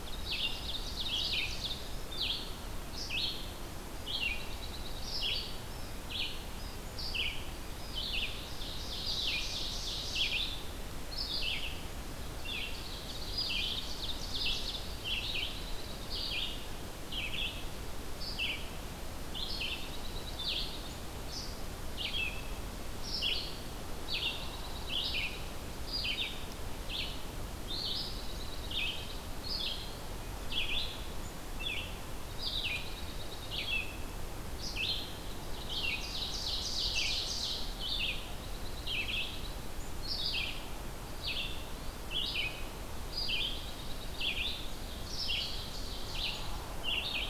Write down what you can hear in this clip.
Ovenbird, Red-eyed Vireo, Dark-eyed Junco, Eastern Wood-Pewee